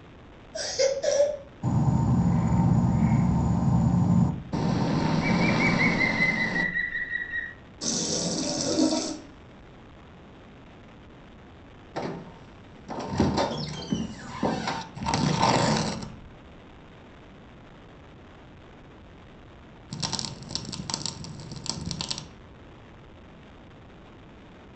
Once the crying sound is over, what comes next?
insect